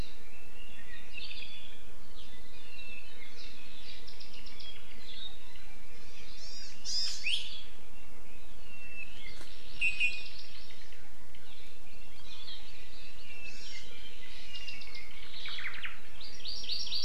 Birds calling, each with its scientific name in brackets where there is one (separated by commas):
Apapane (Himatione sanguinea), Omao (Myadestes obscurus), Hawaii Amakihi (Chlorodrepanis virens)